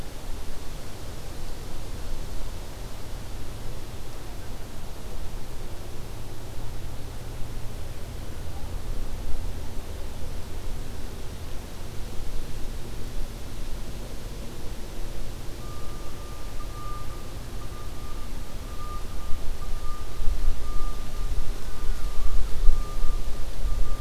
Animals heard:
forest ambience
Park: Acadia National Park